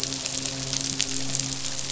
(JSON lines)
{"label": "biophony, midshipman", "recorder": "SoundTrap 500"}